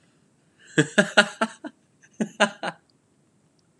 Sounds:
Laughter